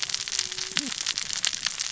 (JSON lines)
{"label": "biophony, cascading saw", "recorder": "SoundTrap 600 or HydroMoth"}